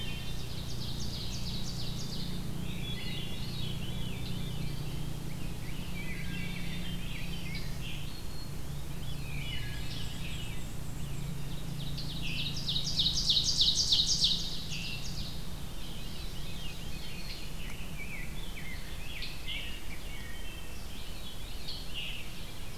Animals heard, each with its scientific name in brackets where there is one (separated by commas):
Black-throated Green Warbler (Setophaga virens), Wood Thrush (Hylocichla mustelina), Scarlet Tanager (Piranga olivacea), Veery (Catharus fuscescens), Ovenbird (Seiurus aurocapilla), Black-and-white Warbler (Mniotilta varia), Rose-breasted Grosbeak (Pheucticus ludovicianus), Red-eyed Vireo (Vireo olivaceus)